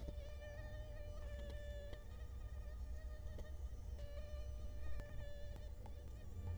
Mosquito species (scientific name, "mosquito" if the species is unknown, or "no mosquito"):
Culex quinquefasciatus